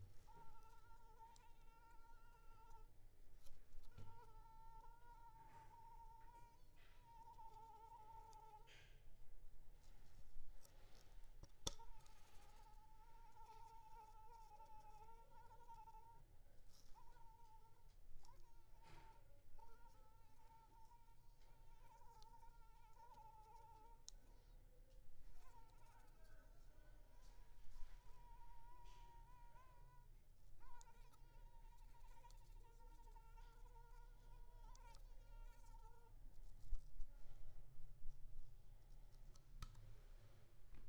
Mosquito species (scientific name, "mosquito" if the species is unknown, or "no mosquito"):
Anopheles arabiensis